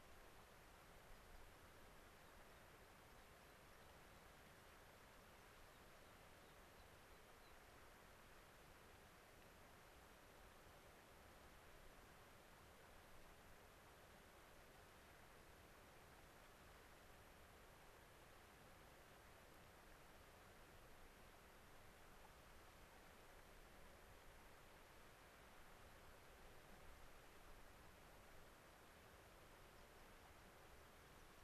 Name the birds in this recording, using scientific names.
Anthus rubescens